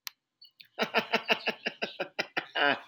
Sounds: Laughter